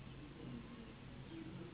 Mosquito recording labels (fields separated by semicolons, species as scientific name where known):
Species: Anopheles gambiae s.s.; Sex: female; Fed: unfed; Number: one; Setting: insect culture